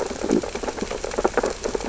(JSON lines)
{"label": "biophony, sea urchins (Echinidae)", "recorder": "SoundTrap 600 or HydroMoth"}
{"label": "biophony, stridulation", "recorder": "SoundTrap 600 or HydroMoth"}